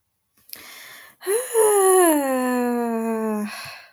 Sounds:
Sigh